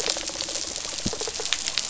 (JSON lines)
{"label": "biophony, rattle response", "recorder": "SoundTrap 500"}